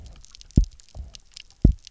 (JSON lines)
{"label": "biophony, double pulse", "recorder": "SoundTrap 300"}